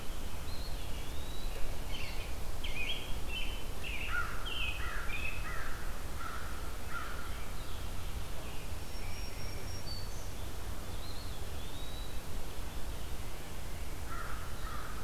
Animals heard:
American Robin (Turdus migratorius), Tufted Titmouse (Baeolophus bicolor), American Crow (Corvus brachyrhynchos), Eastern Wood-Pewee (Contopus virens), Black-throated Green Warbler (Setophaga virens)

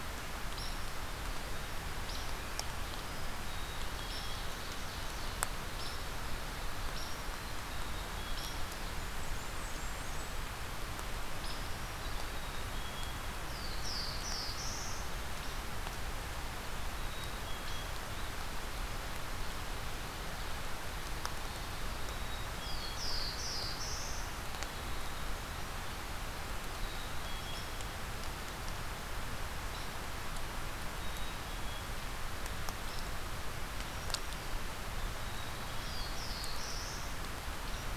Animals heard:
Ovenbird (Seiurus aurocapilla), Black-capped Chickadee (Poecile atricapillus), Black-throated Blue Warbler (Setophaga caerulescens), Hairy Woodpecker (Dryobates villosus), Black-throated Green Warbler (Setophaga virens), Blackburnian Warbler (Setophaga fusca)

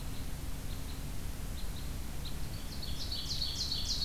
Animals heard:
Red Crossbill (Loxia curvirostra), Ovenbird (Seiurus aurocapilla)

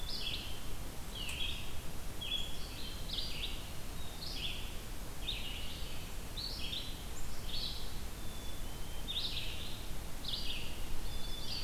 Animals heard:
Black-capped Chickadee (Poecile atricapillus), Red-eyed Vireo (Vireo olivaceus)

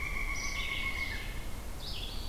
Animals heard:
Pileated Woodpecker (Dryocopus pileatus), Red-eyed Vireo (Vireo olivaceus)

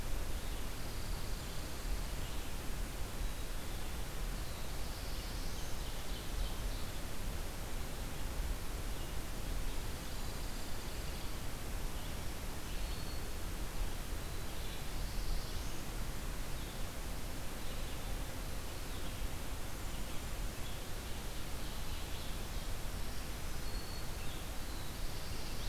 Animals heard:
Ovenbird (Seiurus aurocapilla), Pine Warbler (Setophaga pinus), Red-eyed Vireo (Vireo olivaceus), Black-capped Chickadee (Poecile atricapillus), Black-throated Green Warbler (Setophaga virens), Black-throated Blue Warbler (Setophaga caerulescens)

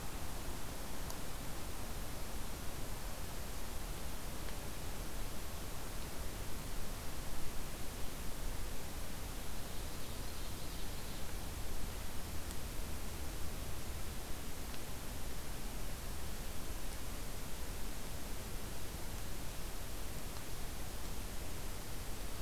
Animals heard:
Ovenbird (Seiurus aurocapilla)

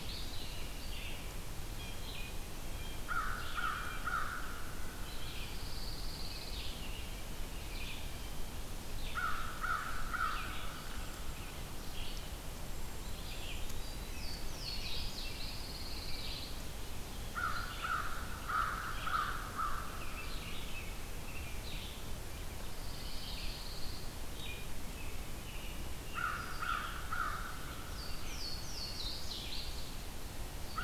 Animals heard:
American Crow (Corvus brachyrhynchos), Cedar Waxwing (Bombycilla cedrorum), Louisiana Waterthrush (Parkesia motacilla), Pine Warbler (Setophaga pinus), American Robin (Turdus migratorius), Eastern Wood-Pewee (Contopus virens), Blue Jay (Cyanocitta cristata), Red-eyed Vireo (Vireo olivaceus)

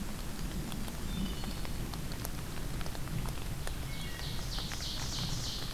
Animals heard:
Ovenbird (Seiurus aurocapilla), Wood Thrush (Hylocichla mustelina)

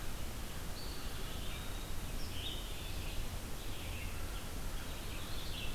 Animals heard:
Red-eyed Vireo (Vireo olivaceus), Eastern Wood-Pewee (Contopus virens)

